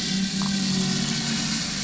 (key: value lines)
label: anthrophony, boat engine
recorder: SoundTrap 500